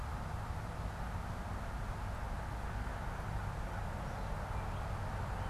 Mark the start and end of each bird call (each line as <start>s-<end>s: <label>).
0.0s-5.5s: unidentified bird